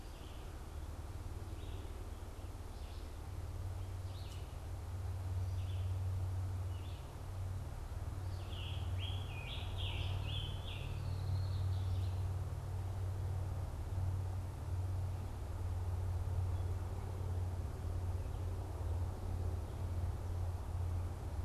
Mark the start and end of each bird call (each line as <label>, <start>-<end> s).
Red-eyed Vireo (Vireo olivaceus), 0.0-6.0 s
Scarlet Tanager (Piranga olivacea), 8.1-11.0 s
Red-winged Blackbird (Agelaius phoeniceus), 10.8-12.3 s